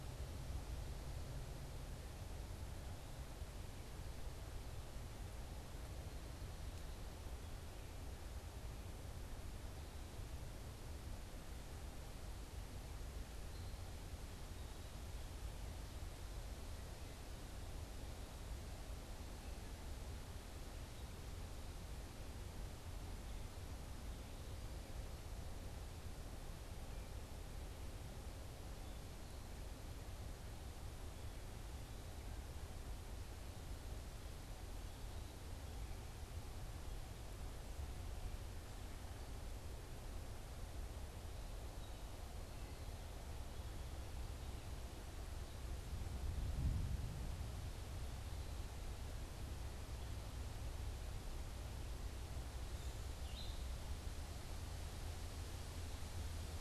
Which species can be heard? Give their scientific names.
unidentified bird, Dumetella carolinensis